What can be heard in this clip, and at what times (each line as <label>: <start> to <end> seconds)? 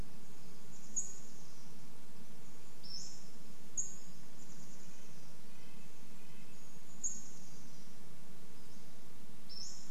Chestnut-backed Chickadee call: 0 to 2 seconds
Pacific-slope Flycatcher call: 0 to 4 seconds
insect buzz: 0 to 10 seconds
Chestnut-backed Chickadee call: 4 to 8 seconds
Red-breasted Nuthatch song: 4 to 8 seconds
Pacific-slope Flycatcher call: 6 to 10 seconds